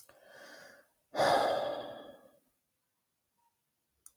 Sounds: Sigh